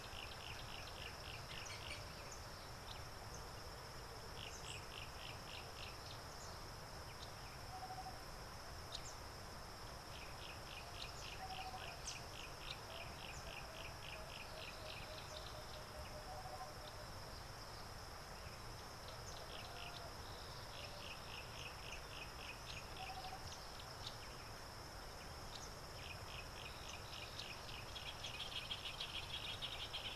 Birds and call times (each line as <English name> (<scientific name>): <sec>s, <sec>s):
Yellow-breasted Apalis (Apalis flavida): 1.0s, 5.3s, 10.7s, 13.2s, 26.6s
African Goshawk (Accipiter tachiro): 2.9s, 8.9s
Tropical Boubou (Laniarius major): 7.8s, 11.5s, 23.2s
Northern Brownbul (Phyllastrephus strepitans): 28.5s